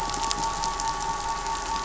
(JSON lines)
{"label": "anthrophony, boat engine", "recorder": "SoundTrap 500"}